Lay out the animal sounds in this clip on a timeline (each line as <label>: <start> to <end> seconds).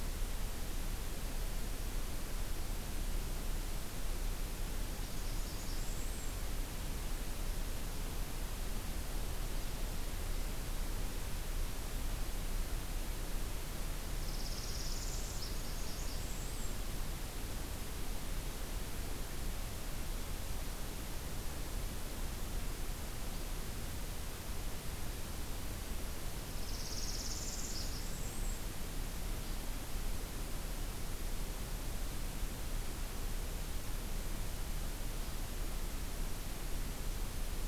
Blackburnian Warbler (Setophaga fusca): 5.1 to 6.4 seconds
Northern Parula (Setophaga americana): 14.2 to 15.6 seconds
Blackburnian Warbler (Setophaga fusca): 15.4 to 16.8 seconds
Northern Parula (Setophaga americana): 26.5 to 28.1 seconds
Blackburnian Warbler (Setophaga fusca): 27.5 to 28.7 seconds